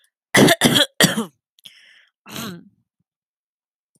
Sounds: Throat clearing